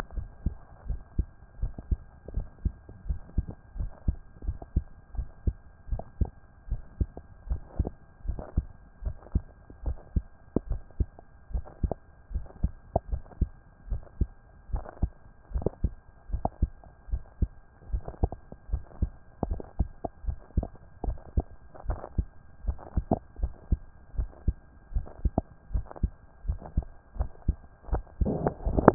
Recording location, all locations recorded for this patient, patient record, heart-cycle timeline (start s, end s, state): mitral valve (MV)
pulmonary valve (PV)+tricuspid valve (TV)+mitral valve (MV)
#Age: Adolescent
#Sex: Male
#Height: 173.0 cm
#Weight: 46.8 kg
#Pregnancy status: False
#Murmur: Present
#Murmur locations: mitral valve (MV)
#Most audible location: mitral valve (MV)
#Systolic murmur timing: Early-systolic
#Systolic murmur shape: Plateau
#Systolic murmur grading: I/VI
#Systolic murmur pitch: Low
#Systolic murmur quality: Harsh
#Diastolic murmur timing: nan
#Diastolic murmur shape: nan
#Diastolic murmur grading: nan
#Diastolic murmur pitch: nan
#Diastolic murmur quality: nan
#Outcome: Abnormal
#Campaign: 2014 screening campaign
0.00	0.16	diastole
0.16	0.26	S1
0.26	0.44	systole
0.44	0.52	S2
0.52	0.88	diastole
0.88	1.00	S1
1.00	1.16	systole
1.16	1.26	S2
1.26	1.60	diastole
1.60	1.72	S1
1.72	1.90	systole
1.90	2.00	S2
2.00	2.34	diastole
2.34	2.46	S1
2.46	2.64	systole
2.64	2.74	S2
2.74	3.08	diastole
3.08	3.20	S1
3.20	3.36	systole
3.36	3.46	S2
3.46	3.78	diastole
3.78	3.90	S1
3.90	4.06	systole
4.06	4.16	S2
4.16	4.46	diastole
4.46	4.58	S1
4.58	4.74	systole
4.74	4.84	S2
4.84	5.16	diastole
5.16	5.28	S1
5.28	5.46	systole
5.46	5.54	S2
5.54	5.90	diastole
5.90	6.02	S1
6.02	6.20	systole
6.20	6.30	S2
6.30	6.70	diastole
6.70	6.82	S1
6.82	6.98	systole
6.98	7.08	S2
7.08	7.48	diastole
7.48	7.60	S1
7.60	7.78	systole
7.78	7.90	S2
7.90	8.26	diastole
8.26	8.38	S1
8.38	8.56	systole
8.56	8.66	S2
8.66	9.04	diastole
9.04	9.16	S1
9.16	9.34	systole
9.34	9.44	S2
9.44	9.84	diastole
9.84	9.98	S1
9.98	10.14	systole
10.14	10.24	S2
10.24	10.68	diastole
10.68	10.80	S1
10.80	10.98	systole
10.98	11.08	S2
11.08	11.52	diastole
11.52	11.64	S1
11.64	11.82	systole
11.82	11.92	S2
11.92	12.32	diastole
12.32	12.44	S1
12.44	12.62	systole
12.62	12.72	S2
12.72	13.10	diastole
13.10	13.22	S1
13.22	13.40	systole
13.40	13.50	S2
13.50	13.90	diastole
13.90	14.02	S1
14.02	14.20	systole
14.20	14.30	S2
14.30	14.72	diastole
14.72	14.84	S1
14.84	15.02	systole
15.02	15.12	S2
15.12	15.54	diastole
15.54	15.66	S1
15.66	15.82	systole
15.82	15.92	S2
15.92	16.32	diastole